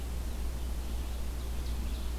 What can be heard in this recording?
Red-eyed Vireo, Ovenbird